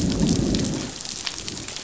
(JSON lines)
{"label": "biophony, growl", "recorder": "SoundTrap 500"}